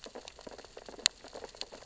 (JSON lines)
{"label": "biophony, sea urchins (Echinidae)", "recorder": "SoundTrap 600 or HydroMoth"}